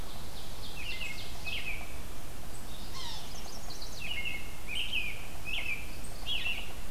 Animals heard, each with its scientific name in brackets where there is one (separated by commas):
Chestnut-sided Warbler (Setophaga pensylvanica), Ovenbird (Seiurus aurocapilla), American Robin (Turdus migratorius), Yellow-bellied Sapsucker (Sphyrapicus varius), Red-eyed Vireo (Vireo olivaceus)